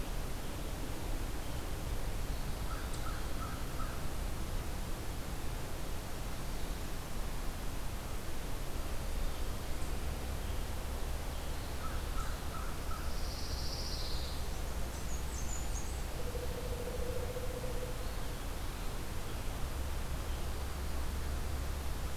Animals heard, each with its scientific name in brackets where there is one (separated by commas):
Pine Warbler (Setophaga pinus), Blackburnian Warbler (Setophaga fusca), American Crow (Corvus brachyrhynchos)